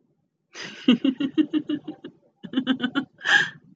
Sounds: Laughter